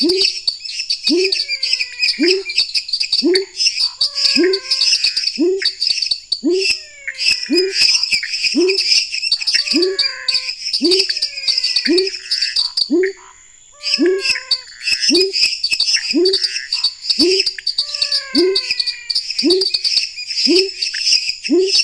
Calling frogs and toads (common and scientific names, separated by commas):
dwarf tree frog (Dendropsophus nanus), lesser tree frog (Dendropsophus minutus), pepper frog (Leptodactylus labyrinthicus), pointedbelly frog (Leptodactylus podicipinus), Pithecopus azureus, menwig frog (Physalaemus albonotatus), Scinax fuscovarius